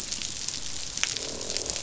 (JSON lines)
{"label": "biophony, croak", "recorder": "SoundTrap 500"}